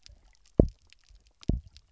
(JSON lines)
{"label": "biophony, double pulse", "recorder": "SoundTrap 300"}